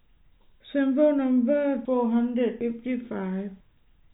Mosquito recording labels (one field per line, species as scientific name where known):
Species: no mosquito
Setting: cup